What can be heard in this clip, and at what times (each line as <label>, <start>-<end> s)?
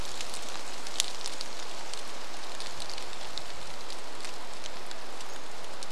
rain, 0-6 s
Pacific-slope Flycatcher call, 4-6 s